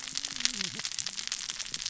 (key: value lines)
label: biophony, cascading saw
recorder: SoundTrap 600 or HydroMoth